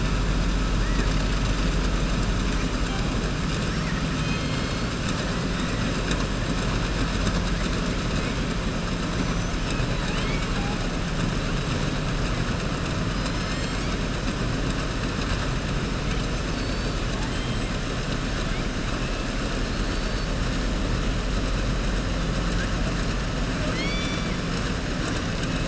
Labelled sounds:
9.9	10.8	killer whale, southern resident, 0.79 to 4.8 kHz
19.7	20.3	killer whale, southern resident, 4.2 to 4.6 kHz
23.6	24.4	killer whale, southern resident, 0.64 to 7.1 kHz

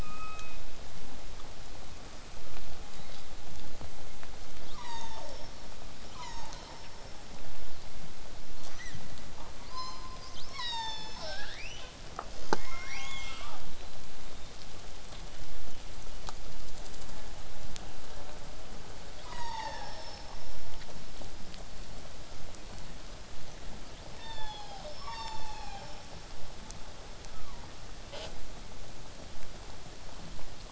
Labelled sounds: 0.0	0.6	killer whale, southern resident, 1.1 to 2.7 kHz
2.9	3.2	killer whale, southern resident, 3.1 to 5.1 kHz
4.6	5.6	killer whale, southern resident, call S36, 0.31 to 8.0 kHz
6.0	7.2	killer whale, southern resident, call S36, 0.72 to 8.0 kHz
8.7	9.0	killer whale, southern resident, 1.3 to 8.0 kHz
9.6	10.1	killer whale, southern resident, 0.81 to 8.0 kHz
10.2	11.4	killer whale, southern resident, call S36, 0.40 to 8.0 kHz
13.7	14.6	killer whale, southern resident, whistle, 3.5 to 8.0 kHz
15.2	17.4	killer whale, southern resident, whistle, 2.6 to 3.2 kHz
18.1	18.7	killer whale, southern resident, J pod, call S04, 0.40 to 1.8 kHz
19.2	20.6	killer whale, southern resident, call S36, 0.40 to 8.0 kHz
20.7	23.8	vessel noise, 0 to 8.0 kHz
24.0	26.1	killer whale, southern resident, call S36, 0.40 to 8.0 kHz
27.3	27.7	killer whale, southern resident, 0.63 to 1.4 kHz
28.1	28.3	killer whale, southern resident, J pod, call S05, 0.31 to 8.0 kHz

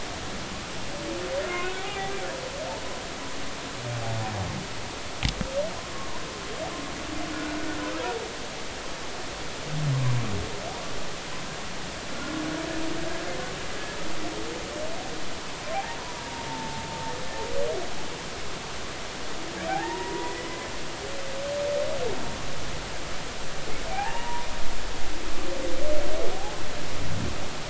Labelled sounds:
1.4	2.1	humpback whale, 0.80 to 1.5 kHz
5.8	6.1	humpback whale, 0.99 to 1.1 kHz
12.1	12.4	humpback whale, 1.4 to 1.5 kHz
16.0	16.8	humpback whale, 0.83 to 1.0 kHz
19.7	20.7	humpback whale, 0.80 to 2.1 kHz
23.9	24.5	humpback whale, 0.80 to 1.9 kHz

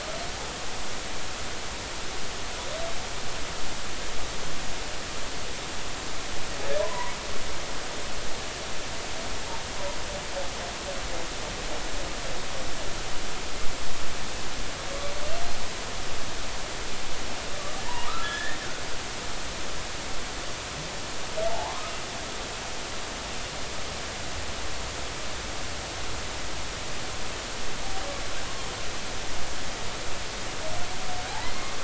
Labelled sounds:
6.8	7.1	humpback whale, 0.90 to 1.1 kHz
17.8	18.6	humpback whale, 0.86 to 3.5 kHz
21.5	21.8	humpback whale, 0.80 to 1.2 kHz
31.3	31.5	humpback whale, 0.80 to 1.1 kHz

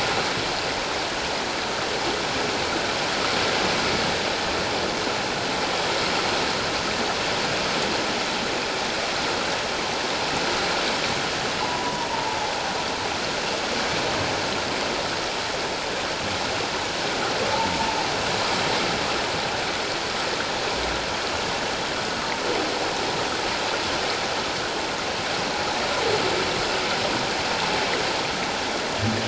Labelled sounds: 11.6	12.4	humpback whale, 0.81 to 1.0 kHz

